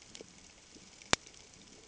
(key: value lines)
label: ambient
recorder: HydroMoth